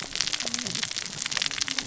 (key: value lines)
label: biophony, cascading saw
recorder: SoundTrap 600 or HydroMoth